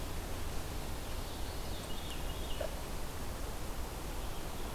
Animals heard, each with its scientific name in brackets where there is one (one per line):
Veery (Catharus fuscescens)